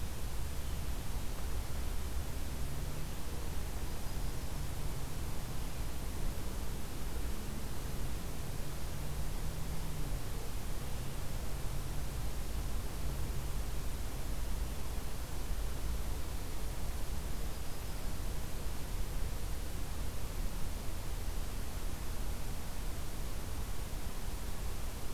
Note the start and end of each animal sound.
3.7s-5.0s: Yellow-rumped Warbler (Setophaga coronata)
17.0s-18.4s: Yellow-rumped Warbler (Setophaga coronata)

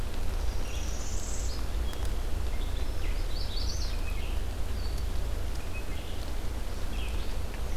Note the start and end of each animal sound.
0.0s-7.8s: Red-eyed Vireo (Vireo olivaceus)
0.5s-1.6s: Northern Parula (Setophaga americana)
3.0s-4.0s: Magnolia Warbler (Setophaga magnolia)

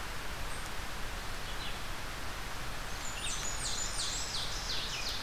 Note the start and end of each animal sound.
0.0s-5.2s: Red-eyed Vireo (Vireo olivaceus)
2.9s-4.4s: Blackburnian Warbler (Setophaga fusca)
3.5s-5.2s: Ovenbird (Seiurus aurocapilla)

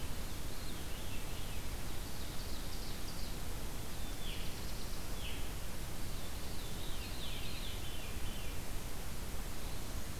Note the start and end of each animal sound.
0.4s-1.8s: Veery (Catharus fuscescens)
1.8s-3.4s: Ovenbird (Seiurus aurocapilla)
3.8s-5.4s: Black-throated Blue Warbler (Setophaga caerulescens)
4.1s-4.7s: Veery (Catharus fuscescens)
5.1s-5.5s: Veery (Catharus fuscescens)
5.9s-8.6s: Veery (Catharus fuscescens)

